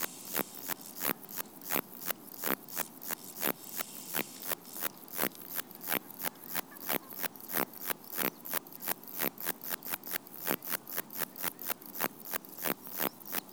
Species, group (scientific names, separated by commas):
Metrioptera saussuriana, Orthoptera